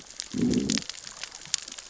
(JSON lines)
{"label": "biophony, growl", "recorder": "SoundTrap 600 or HydroMoth"}